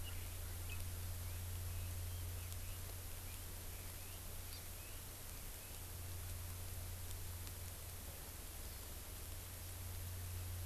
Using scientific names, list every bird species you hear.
Leiothrix lutea, Chlorodrepanis virens